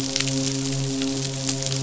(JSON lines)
{"label": "biophony, midshipman", "recorder": "SoundTrap 500"}